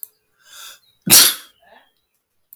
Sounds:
Sneeze